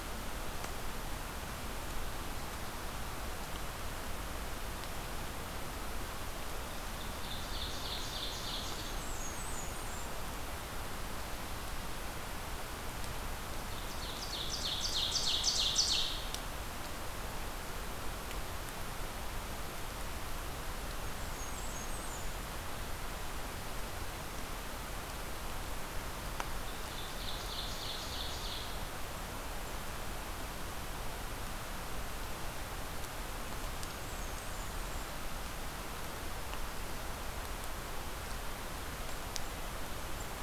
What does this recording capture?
Ovenbird, Blackburnian Warbler